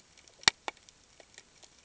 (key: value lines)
label: ambient
recorder: HydroMoth